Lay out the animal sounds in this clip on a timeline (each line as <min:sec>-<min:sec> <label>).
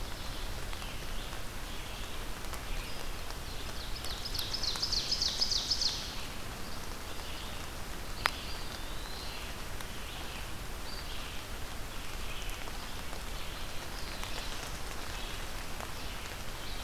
0:00.0-0:16.8 Red-eyed Vireo (Vireo olivaceus)
0:03.6-0:06.3 Ovenbird (Seiurus aurocapilla)
0:08.2-0:09.5 Eastern Wood-Pewee (Contopus virens)